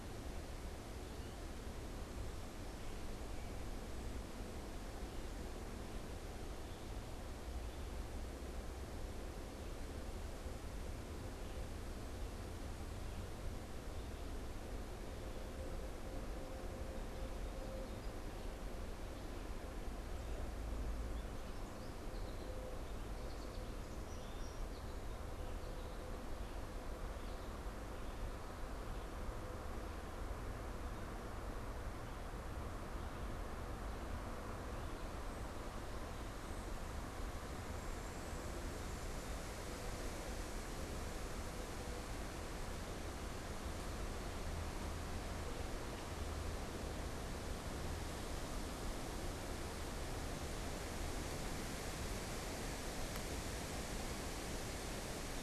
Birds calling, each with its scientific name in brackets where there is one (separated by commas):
American Goldfinch (Spinus tristis)